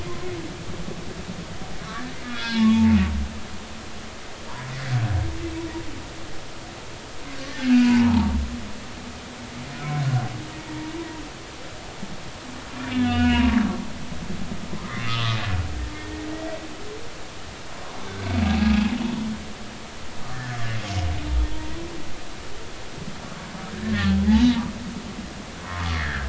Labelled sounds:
2.2	2.8	humpback whale, 0.83 to 3.5 kHz
7.7	8.4	humpback whale, 0.80 to 1.6 kHz
12.7	13.5	humpback whale, 1.2 to 3.7 kHz
15.1	15.4	humpback whale, 1.0 to 1.3 kHz
18.7	18.9	humpback whale, 2.5 to 2.7 kHz
21.3	21.8	humpback whale, 1.6 to 2.0 kHz
23.7	24.7	humpback whale, 0.83 to 3.3 kHz
25.7	26.2	humpback whale, 0.96 to 2.2 kHz

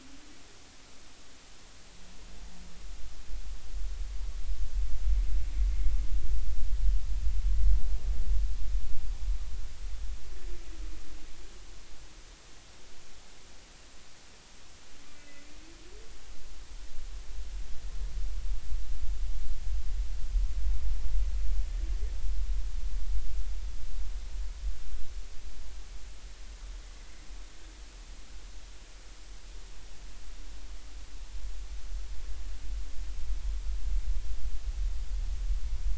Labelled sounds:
15.2	15.5	humpback whale, 2.0 to 2.7 kHz
26.8	27.1	humpback whale, 1.9 to 2.1 kHz

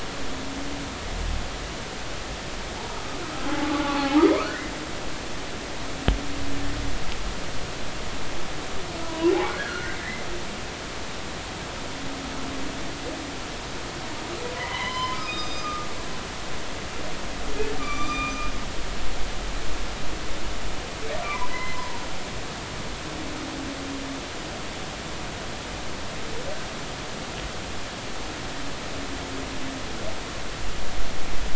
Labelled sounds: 2.8	3.2	humpback whale, 0.80 to 1.3 kHz
3.6	4.5	humpback whale, 0.80 to 2.6 kHz
9.0	10.3	humpback whale, 0.93 to 2.1 kHz
14.5	15.9	humpback whale, 0.80 to 6.2 kHz
17.8	18.5	humpback whale, 1.1 to 7.3 kHz
21.2	21.8	humpback whale, 0.93 to 4.2 kHz

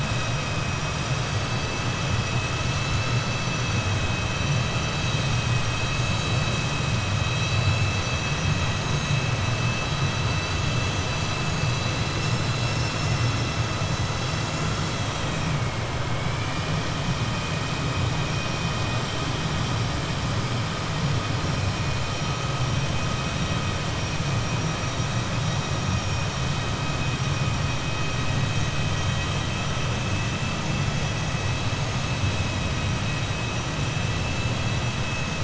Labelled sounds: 16.3	16.7	vessel noise, 1.8 to 3.0 kHz

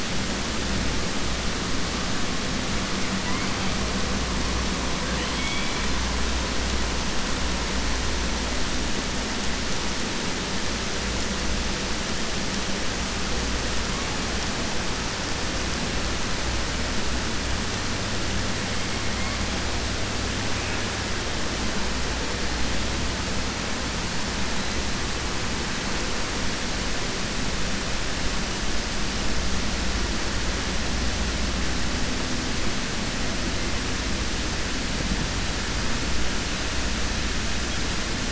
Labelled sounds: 5.1	5.9	killer whale, 1.9 to 3.5 kHz

